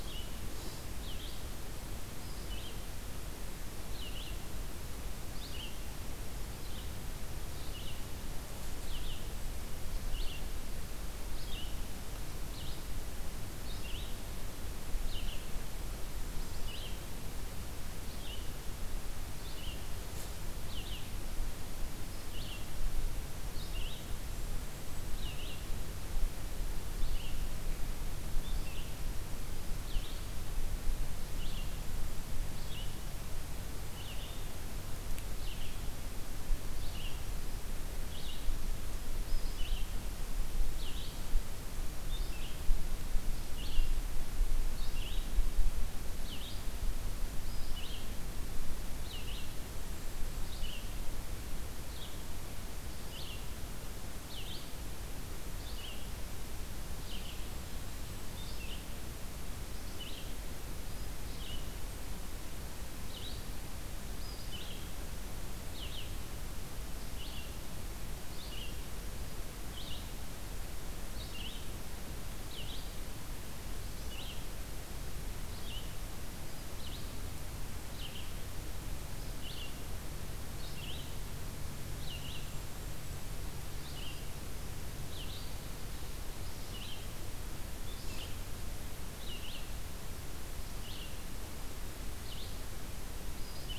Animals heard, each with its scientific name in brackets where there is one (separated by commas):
Red-eyed Vireo (Vireo olivaceus), Golden-crowned Kinglet (Regulus satrapa)